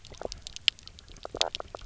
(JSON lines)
{"label": "biophony, knock croak", "recorder": "SoundTrap 300"}